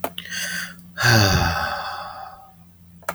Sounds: Sigh